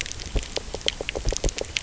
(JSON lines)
{"label": "biophony", "recorder": "SoundTrap 300"}